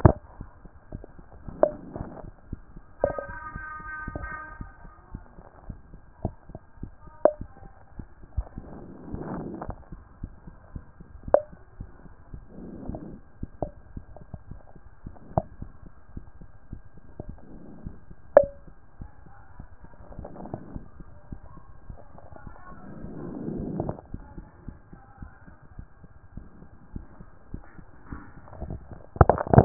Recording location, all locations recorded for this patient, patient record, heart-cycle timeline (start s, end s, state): mitral valve (MV)
aortic valve (AV)+pulmonary valve (PV)+tricuspid valve (TV)+mitral valve (MV)
#Age: Child
#Sex: Male
#Height: 158.0 cm
#Weight: 56.0 kg
#Pregnancy status: False
#Murmur: Absent
#Murmur locations: nan
#Most audible location: nan
#Systolic murmur timing: nan
#Systolic murmur shape: nan
#Systolic murmur grading: nan
#Systolic murmur pitch: nan
#Systolic murmur quality: nan
#Diastolic murmur timing: nan
#Diastolic murmur shape: nan
#Diastolic murmur grading: nan
#Diastolic murmur pitch: nan
#Diastolic murmur quality: nan
#Outcome: Abnormal
#Campaign: 2014 screening campaign
0.00	13.94	unannotated
13.94	14.04	S1
14.04	14.20	systole
14.20	14.28	S2
14.28	14.50	diastole
14.50	14.60	S1
14.60	14.76	systole
14.76	14.84	S2
14.84	15.06	diastole
15.06	15.14	S1
15.14	15.34	systole
15.34	15.44	S2
15.44	15.62	diastole
15.62	15.72	S1
15.72	15.86	systole
15.86	15.94	S2
15.94	16.14	diastole
16.14	16.24	S1
16.24	16.40	systole
16.40	16.48	S2
16.48	16.71	diastole
16.71	16.82	S1
16.82	16.96	systole
16.96	17.06	S2
17.06	17.26	diastole
17.26	17.36	S1
17.36	17.52	systole
17.52	17.60	S2
17.60	17.84	diastole
17.84	29.65	unannotated